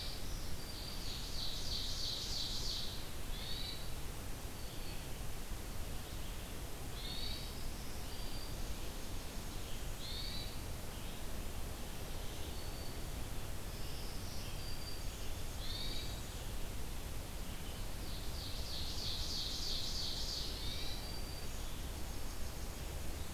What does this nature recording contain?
Black-throated Green Warbler, Ovenbird, Hermit Thrush, Nashville Warbler